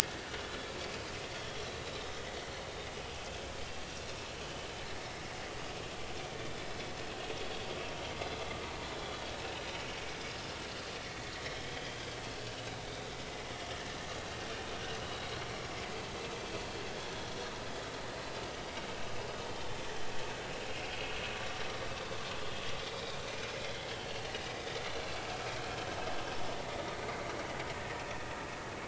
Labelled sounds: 1.7	2.0	vessel noise, 3.8 to 4.1 kHz
11.5	12.1	vessel noise, 3.0 to 3.4 kHz
15.1	15.3	vessel noise, 3.8 to 3.9 kHz
19.6	19.9	vessel noise, 3.4 to 3.6 kHz
21.4	21.7	vessel noise, 5.5 to 5.8 kHz
22.9	23.5	vessel noise, 2.3 to 2.5 kHz
24.5	25.2	vessel noise, 1.8 to 4.2 kHz
27.0	28.0	vessel noise, 1.8 to 2.3 kHz

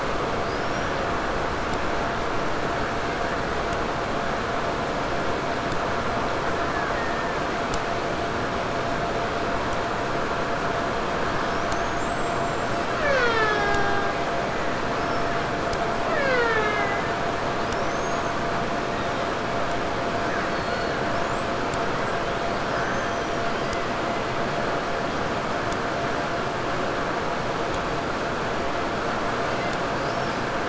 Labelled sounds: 0.3	1.1	killer whale, 3.6 to 6.0 kHz
6.4	7.6	killer whale, 0.95 to 2.5 kHz
11.2	14.4	killer whale, Bigg's (transient), 0.26 to 8.0 kHz
14.9	17.2	killer whale, Bigg's (transient), 0.21 to 6.1 kHz
20.2	24.5	killer whale, 0.84 to 8.0 kHz
29.1	30.5	killer whale, 1.5 to 8.0 kHz

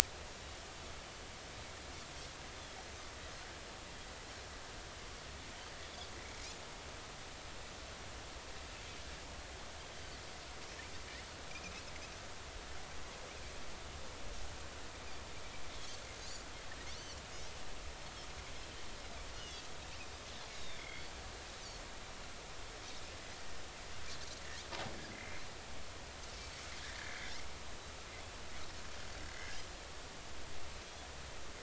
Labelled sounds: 9.9	10.2	Pacific white-sided dolphin, 4.3 to 4.7 kHz
15.8	16.5	Pacific white-sided dolphin, 4.3 to 4.9 kHz
19.4	19.7	Pacific white-sided dolphin, 5.9 to 6.6 kHz
20.6	21.0	Pacific white-sided dolphin, 2.0 to 3.9 kHz
27.0	27.3	Pacific white-sided dolphin, 1.6 to 2.3 kHz
29.4	29.7	Pacific white-sided dolphin, 4.9 to 5.2 kHz

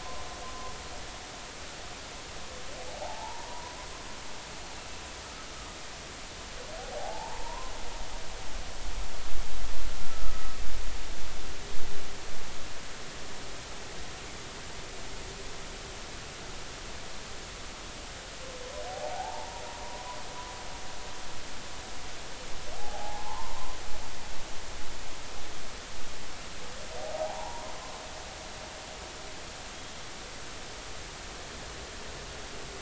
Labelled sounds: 3.0	3.8	humpback whale, 0.80 to 1.1 kHz
6.8	7.7	humpback whale, 0.80 to 1.1 kHz
10.0	10.6	humpback whale, 1.2 to 1.4 kHz
18.9	19.6	humpback whale, 0.80 to 0.99 kHz
22.8	23.8	humpback whale, 0.80 to 1.1 kHz
27.1	27.8	humpback whale, 0.80 to 1.1 kHz

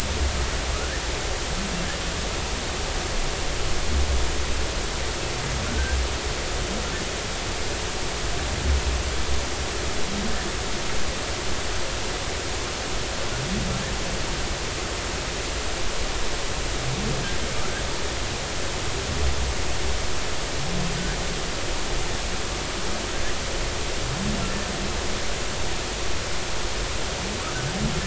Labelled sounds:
5.7	6.0	humpback whale, 1.3 to 1.6 kHz

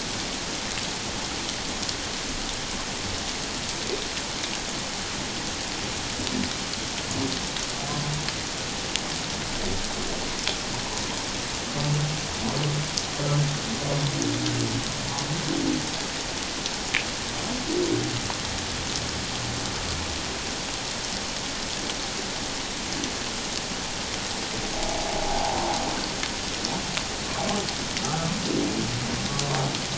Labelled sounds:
25.2	25.6	humpback whale, 0.78 to 0.97 kHz
28.0	28.3	humpback whale, 1.2 to 1.5 kHz

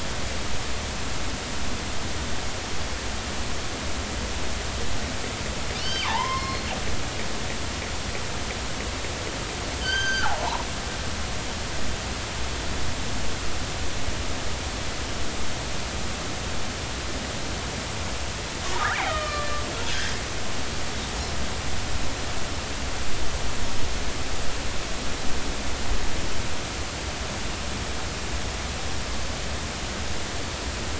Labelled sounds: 5.8	6.7	killer whale, northern resident, G clan, call N23i, 0.80 to 5.4 kHz
9.8	10.6	killer whale, northern resident, G clan, call N23i, 0.80 to 6.3 kHz
18.9	19.6	killer whale, northern resident, G clan, GG subclan, call N44, 1.1 to 3.2 kHz

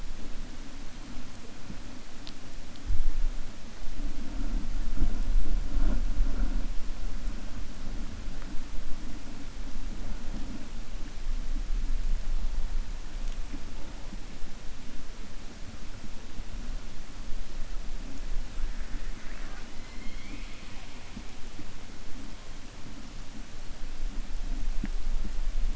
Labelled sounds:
18.5	21.0	killer whale, 0.77 to 4.2 kHz

